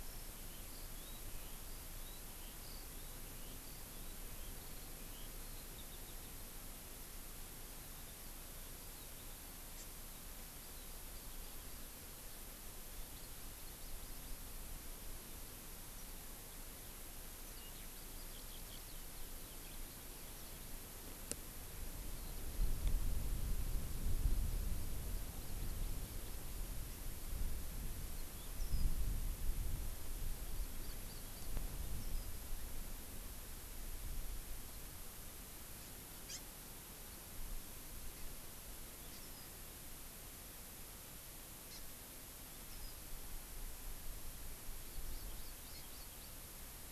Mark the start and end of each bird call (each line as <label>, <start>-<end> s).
Eurasian Skylark (Alauda arvensis), 0.0-6.3 s
Hawaii Amakihi (Chlorodrepanis virens), 9.7-10.0 s
Eurasian Skylark (Alauda arvensis), 17.5-20.6 s
Yellow-fronted Canary (Crithagra mozambica), 28.1-28.9 s
Yellow-fronted Canary (Crithagra mozambica), 31.9-32.4 s
Hawaii Amakihi (Chlorodrepanis virens), 36.2-36.5 s
Yellow-fronted Canary (Crithagra mozambica), 38.9-39.6 s
Hawaii Amakihi (Chlorodrepanis virens), 41.6-41.9 s
Yellow-fronted Canary (Crithagra mozambica), 42.6-43.0 s
Hawaii Amakihi (Chlorodrepanis virens), 44.8-46.4 s